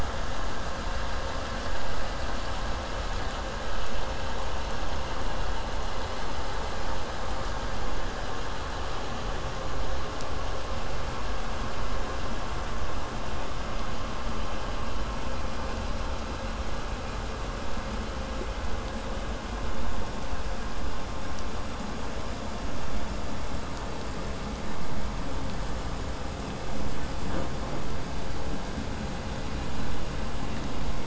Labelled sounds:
27.3	27.8	killer whale, southern resident, buzz, 0.16 to 3.4 kHz

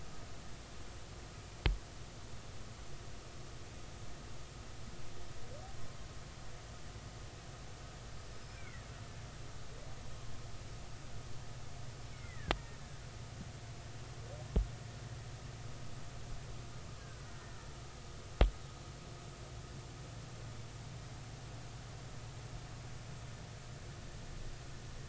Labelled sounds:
8.4	8.9	killer whale, Bigg's (transient), 1.3 to 2.5 kHz
12.1	12.5	killer whale, Bigg's (transient), 1.5 to 2.3 kHz
17.0	17.6	killer whale, Bigg's (transient), 1.4 to 2.0 kHz

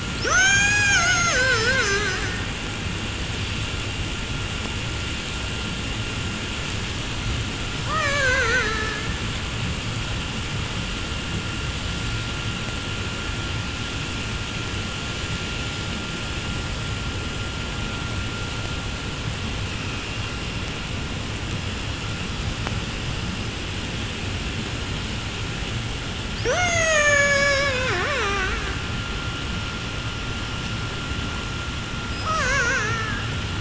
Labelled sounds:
0.0	2.8	killer whale, 0.09 to 8.0 kHz
7.8	9.5	killer whale, 0.19 to 8.0 kHz
26.3	29.1	killer whale, 0.04 to 8.0 kHz
32.0	33.5	killer whale, 0.13 to 8.0 kHz

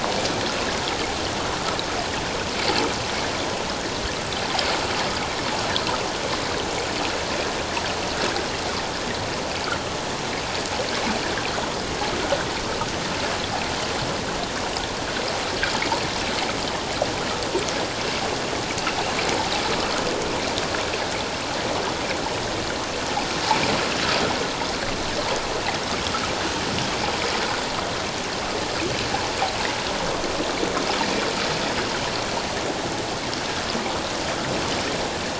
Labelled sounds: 12.2	12.5	water noise, 1.4 to 1.6 kHz

